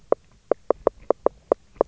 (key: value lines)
label: biophony, knock
recorder: SoundTrap 300